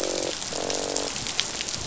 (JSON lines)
{"label": "biophony, croak", "recorder": "SoundTrap 500"}